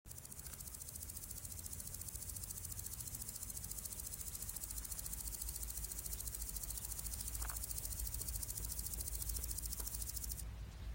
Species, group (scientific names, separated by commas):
Omocestus viridulus, Orthoptera